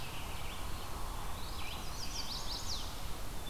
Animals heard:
American Robin (Turdus migratorius), Chestnut-sided Warbler (Setophaga pensylvanica)

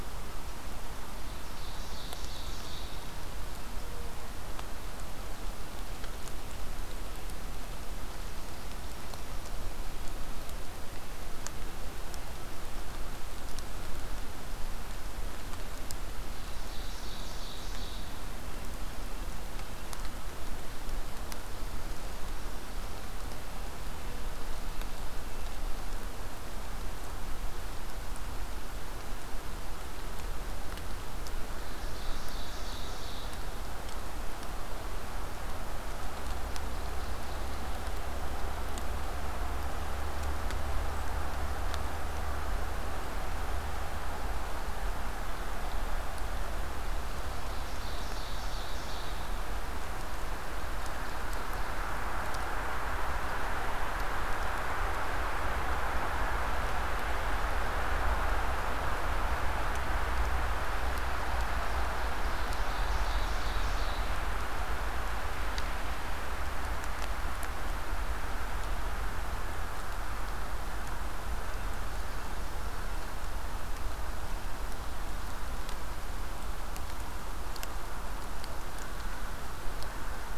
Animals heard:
Ovenbird (Seiurus aurocapilla)

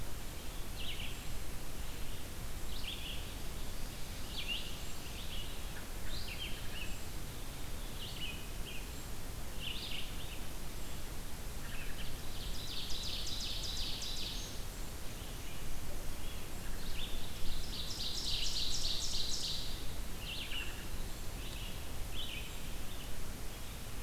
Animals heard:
Red-eyed Vireo (Vireo olivaceus), Wood Thrush (Hylocichla mustelina), Brown Creeper (Certhia americana), Ovenbird (Seiurus aurocapilla)

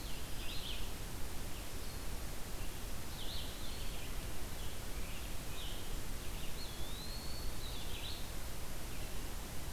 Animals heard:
Red-eyed Vireo (Vireo olivaceus), Scarlet Tanager (Piranga olivacea), Blue-headed Vireo (Vireo solitarius), Eastern Wood-Pewee (Contopus virens)

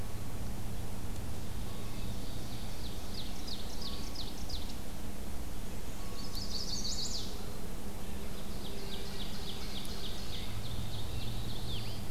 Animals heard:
Black-and-white Warbler (Mniotilta varia), Black-throated Blue Warbler (Setophaga caerulescens), Rose-breasted Grosbeak (Pheucticus ludovicianus), Wood Thrush (Hylocichla mustelina), Chestnut-sided Warbler (Setophaga pensylvanica), Ovenbird (Seiurus aurocapilla)

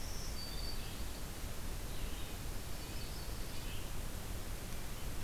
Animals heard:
Black-throated Green Warbler (Setophaga virens), Red-eyed Vireo (Vireo olivaceus), Yellow-rumped Warbler (Setophaga coronata), Red-breasted Nuthatch (Sitta canadensis)

